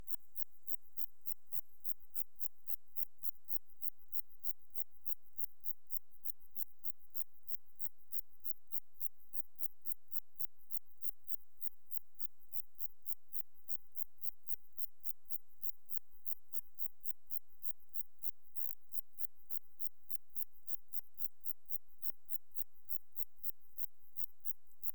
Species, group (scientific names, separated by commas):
Zeuneriana abbreviata, Orthoptera